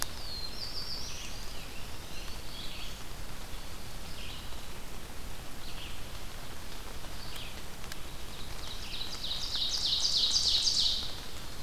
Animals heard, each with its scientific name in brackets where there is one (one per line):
Red-eyed Vireo (Vireo olivaceus)
Scarlet Tanager (Piranga olivacea)
Eastern Wood-Pewee (Contopus virens)
Black-throated Green Warbler (Setophaga virens)
Black-throated Blue Warbler (Setophaga caerulescens)
Ovenbird (Seiurus aurocapilla)